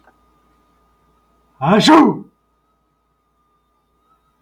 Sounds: Sneeze